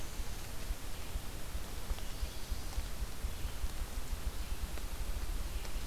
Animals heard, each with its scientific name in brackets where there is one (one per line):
Ruffed Grouse (Bonasa umbellus)
Red-eyed Vireo (Vireo olivaceus)